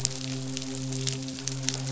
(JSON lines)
{"label": "biophony, midshipman", "recorder": "SoundTrap 500"}